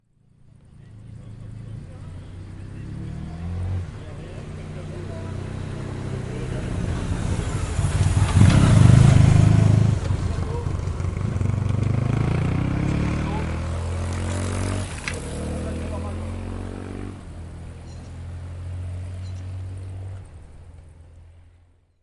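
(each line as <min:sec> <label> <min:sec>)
0:00.0 A motorbike approaches, its sound increasing in loudness. 0:07.2
0:07.3 A motorbike rides by very close. 0:10.3
0:10.3 A motorbike drives by, gradually becoming quieter. 0:22.0
0:10.3 People talking softly in the background. 0:22.0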